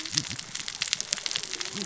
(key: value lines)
label: biophony, cascading saw
recorder: SoundTrap 600 or HydroMoth